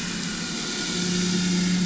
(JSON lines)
{"label": "anthrophony, boat engine", "recorder": "SoundTrap 500"}